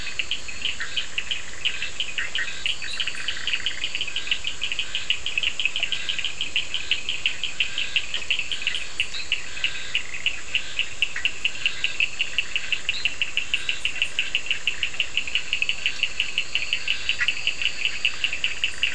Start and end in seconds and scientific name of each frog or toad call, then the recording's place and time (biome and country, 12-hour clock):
0.0	4.0	Boana bischoffi
0.0	18.9	Elachistocleis bicolor
0.0	18.9	Scinax perereca
0.0	18.9	Sphaenorhynchus surdus
2.9	4.0	Boana leptolineata
11.1	11.3	Boana bischoffi
17.2	18.9	Boana bischoffi
Atlantic Forest, Brazil, 11:30pm